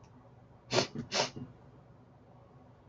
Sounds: Sniff